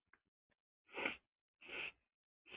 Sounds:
Sniff